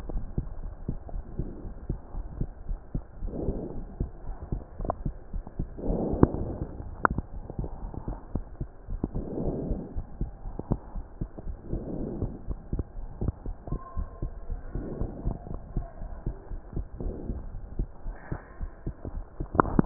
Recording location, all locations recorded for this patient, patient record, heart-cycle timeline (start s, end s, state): pulmonary valve (PV)
aortic valve (AV)+pulmonary valve (PV)+tricuspid valve (TV)+mitral valve (MV)
#Age: nan
#Sex: Male
#Height: 123.0 cm
#Weight: 29.2 kg
#Pregnancy status: False
#Murmur: Absent
#Murmur locations: nan
#Most audible location: nan
#Systolic murmur timing: nan
#Systolic murmur shape: nan
#Systolic murmur grading: nan
#Systolic murmur pitch: nan
#Systolic murmur quality: nan
#Diastolic murmur timing: nan
#Diastolic murmur shape: nan
#Diastolic murmur grading: nan
#Diastolic murmur pitch: nan
#Diastolic murmur quality: nan
#Outcome: Normal
#Campaign: 2015 screening campaign
0.00	7.18	unannotated
7.18	7.34	diastole
7.34	7.44	S1
7.44	7.58	systole
7.58	7.70	S2
7.70	7.82	diastole
7.82	7.91	S1
7.91	8.06	systole
8.06	8.18	S2
8.18	8.32	diastole
8.32	8.44	S1
8.44	8.58	systole
8.58	8.68	S2
8.68	8.88	diastole
8.88	9.02	S1
9.02	9.16	systole
9.16	9.26	S2
9.26	9.40	diastole
9.40	9.54	S1
9.54	9.68	systole
9.68	9.82	S2
9.82	9.96	diastole
9.96	10.06	S1
10.06	10.20	systole
10.20	10.32	S2
10.32	10.46	diastole
10.46	10.56	S1
10.56	10.70	systole
10.70	10.80	S2
10.80	10.94	diastole
10.94	11.04	S1
11.04	11.22	systole
11.22	11.28	S2
11.28	11.46	diastole
11.46	11.58	S1
11.58	11.70	systole
11.70	11.84	S2
11.84	11.98	diastole
11.98	12.14	S1
12.14	12.24	systole
12.24	12.34	S2
12.34	12.48	diastole
12.48	12.58	S1
12.58	12.72	systole
12.72	12.86	S2
12.86	12.98	diastole
12.98	13.10	S1
13.10	13.22	systole
13.22	13.34	S2
13.34	13.44	diastole
13.44	13.56	S1
13.56	13.70	systole
13.70	13.80	S2
13.80	13.96	diastole
13.96	14.08	S1
14.08	14.20	systole
14.20	14.34	S2
14.34	14.48	diastole
14.48	14.59	S1
14.59	14.73	systole
14.73	14.86	S2
14.86	15.00	diastole
15.00	15.12	S1
15.12	15.24	systole
15.24	15.36	S2
15.36	15.50	diastole
15.50	15.62	S1
15.62	15.74	systole
15.74	15.88	S2
15.88	16.02	diastole
16.02	16.12	S1
16.12	16.22	systole
16.22	16.36	S2
16.36	16.50	diastole
16.50	16.60	S1
16.60	16.74	systole
16.74	16.86	S2
16.86	17.00	diastole
17.00	17.14	S1
17.14	17.26	systole
17.26	17.38	S2
17.38	17.52	diastole
17.52	17.62	S1
17.62	17.76	systole
17.76	17.88	S2
17.88	18.06	diastole
18.06	18.16	S1
18.16	18.30	systole
18.30	18.40	S2
18.40	18.60	diastole
18.60	18.70	S1
18.70	18.86	systole
18.86	18.96	S2
18.96	19.14	diastole
19.14	19.26	S1
19.26	19.40	systole
19.40	19.48	S2
19.48	19.86	unannotated